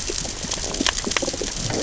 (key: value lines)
label: biophony, growl
recorder: SoundTrap 600 or HydroMoth

label: biophony, damselfish
recorder: SoundTrap 600 or HydroMoth